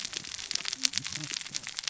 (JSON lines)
{"label": "biophony, cascading saw", "recorder": "SoundTrap 600 or HydroMoth"}